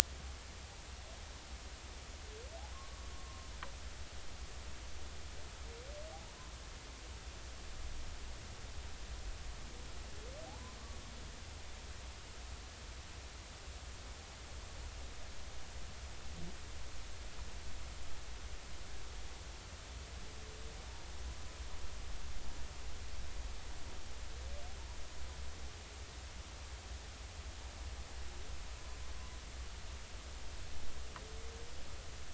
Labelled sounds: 2.7	3.5	humpback whale, 0.96 to 1.2 kHz
10.5	10.8	humpback whale, 0.80 to 1.1 kHz

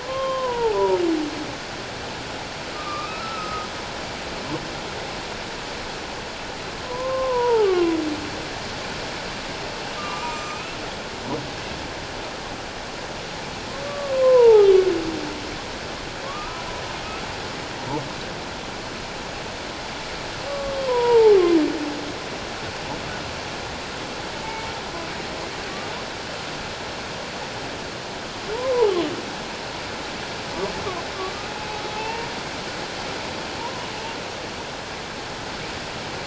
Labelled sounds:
0.0	1.0	humpback whale, 0.81 to 3.2 kHz
2.7	3.7	humpback whale, 1.1 to 2.6 kHz
6.8	7.9	humpback whale, 0.78 to 1.4 kHz
10.0	10.8	humpback whale, 0.94 to 7.4 kHz
13.8	14.7	humpback whale, 0.78 to 1.2 kHz
16.2	16.7	humpback whale, 1.0 to 1.4 kHz
20.5	21.4	humpback whale, 0.81 to 1.2 kHz
24.4	24.8	humpback whale, 0.81 to 2.3 kHz
28.5	28.9	humpback whale, 0.78 to 1.1 kHz
32.0	32.3	humpback whale, 0.81 to 2.8 kHz
33.6	33.9	humpback whale, 0.88 to 1.1 kHz

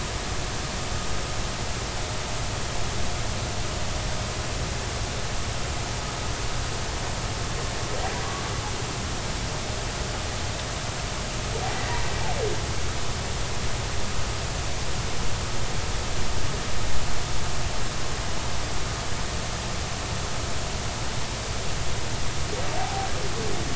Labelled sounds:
11.8	12.0	humpback whale, 1.8 to 2.0 kHz

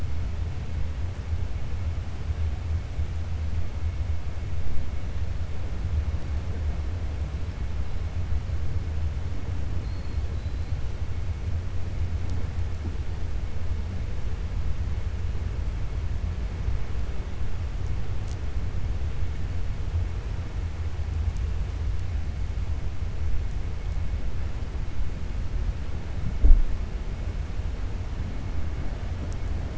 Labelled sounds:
10.3	10.7	killer whale, 3.9 to 4.2 kHz

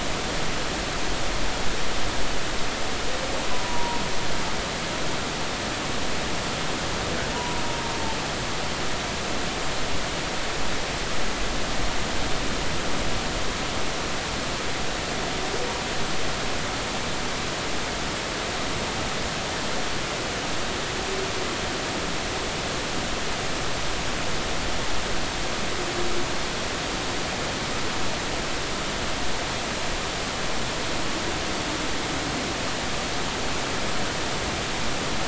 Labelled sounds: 3.5	4.0	humpback whale, 0.90 to 1.0 kHz
7.3	7.6	humpback whale, 0.93 to 1.0 kHz

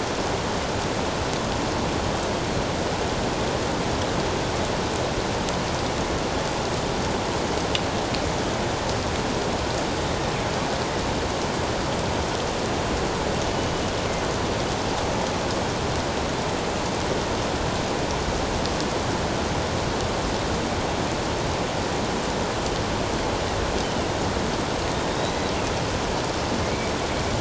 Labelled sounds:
13.5	13.8	killer whale, northern resident, G clan, 2.9 to 3.0 kHz
25.1	25.4	killer whale, northern resident, G clan, 3.7 to 4.1 kHz

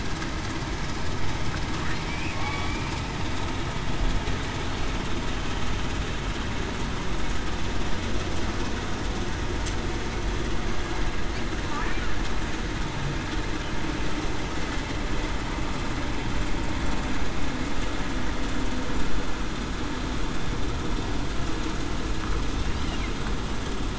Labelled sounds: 2.3	2.8	killer whale, southern resident, 1.1 to 1.2 kHz

